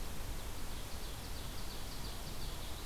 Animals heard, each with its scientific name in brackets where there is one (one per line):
Ovenbird (Seiurus aurocapilla)